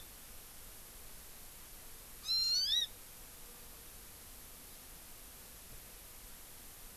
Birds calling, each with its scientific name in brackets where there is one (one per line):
Hawaii Amakihi (Chlorodrepanis virens)